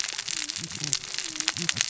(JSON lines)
{"label": "biophony, cascading saw", "recorder": "SoundTrap 600 or HydroMoth"}